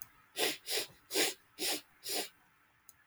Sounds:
Sniff